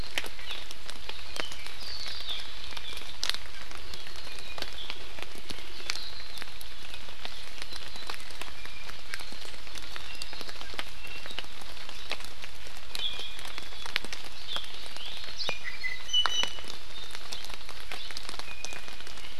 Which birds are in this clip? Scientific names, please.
Chlorodrepanis virens, Himatione sanguinea, Drepanis coccinea